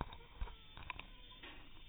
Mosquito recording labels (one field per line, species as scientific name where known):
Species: mosquito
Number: one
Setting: cup